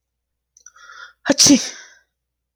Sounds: Sneeze